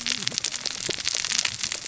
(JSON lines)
{"label": "biophony, cascading saw", "recorder": "SoundTrap 600 or HydroMoth"}